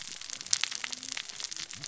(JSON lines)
{"label": "biophony, cascading saw", "recorder": "SoundTrap 600 or HydroMoth"}